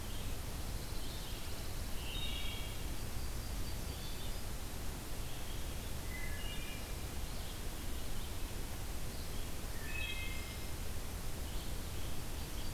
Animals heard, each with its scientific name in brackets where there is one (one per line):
Wood Thrush (Hylocichla mustelina)
Red-eyed Vireo (Vireo olivaceus)
Pine Warbler (Setophaga pinus)
Yellow-rumped Warbler (Setophaga coronata)